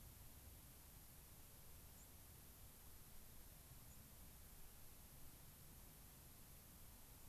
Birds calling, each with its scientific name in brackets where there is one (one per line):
White-crowned Sparrow (Zonotrichia leucophrys)